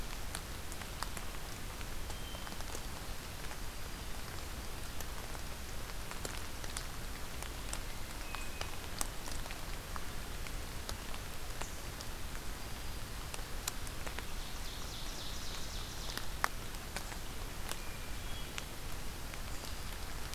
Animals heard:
Hermit Thrush (Catharus guttatus), Ovenbird (Seiurus aurocapilla)

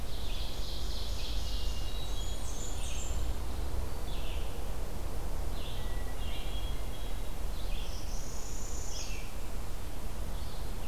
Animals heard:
Hermit Thrush (Catharus guttatus), Red-eyed Vireo (Vireo olivaceus), Northern Parula (Setophaga americana), Blackburnian Warbler (Setophaga fusca), Ovenbird (Seiurus aurocapilla), Red-breasted Nuthatch (Sitta canadensis)

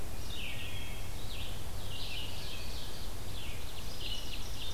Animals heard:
Ovenbird (Seiurus aurocapilla), Red-eyed Vireo (Vireo olivaceus), Wood Thrush (Hylocichla mustelina)

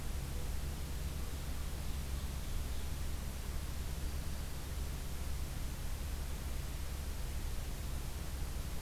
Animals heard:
Dark-eyed Junco (Junco hyemalis), Ovenbird (Seiurus aurocapilla)

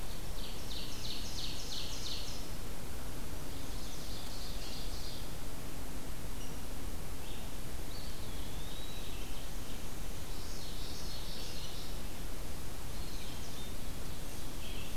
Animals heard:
Red-eyed Vireo (Vireo olivaceus), Chestnut-sided Warbler (Setophaga pensylvanica), Common Yellowthroat (Geothlypis trichas), Rose-breasted Grosbeak (Pheucticus ludovicianus), Eastern Wood-Pewee (Contopus virens), Ovenbird (Seiurus aurocapilla)

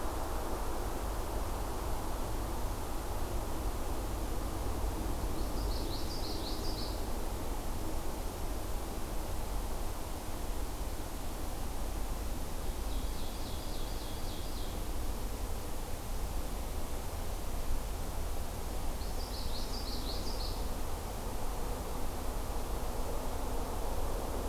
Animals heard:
Ovenbird (Seiurus aurocapilla), Common Yellowthroat (Geothlypis trichas)

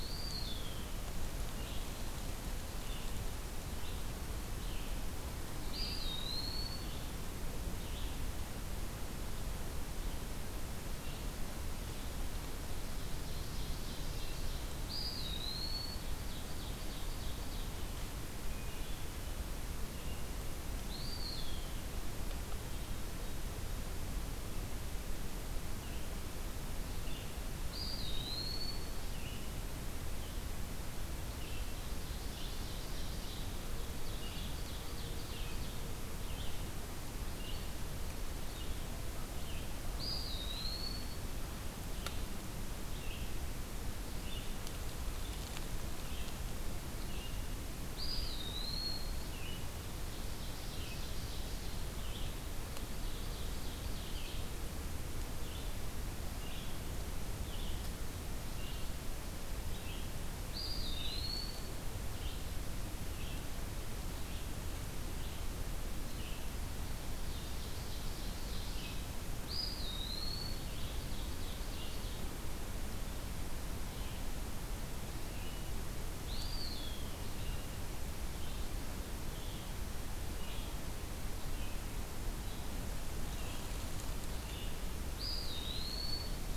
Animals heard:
Red-eyed Vireo (Vireo olivaceus), Ovenbird (Seiurus aurocapilla), Eastern Wood-Pewee (Contopus virens), Hermit Thrush (Catharus guttatus)

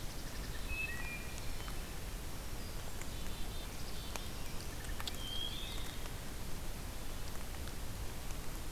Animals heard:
Wood Thrush (Hylocichla mustelina), Black-capped Chickadee (Poecile atricapillus), Black-throated Green Warbler (Setophaga virens)

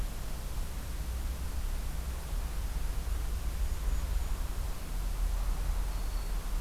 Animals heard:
Golden-crowned Kinglet (Regulus satrapa), Black-throated Green Warbler (Setophaga virens)

